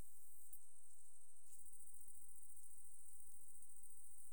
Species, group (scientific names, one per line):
Tettigonia viridissima
Orthoptera